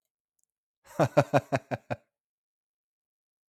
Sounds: Laughter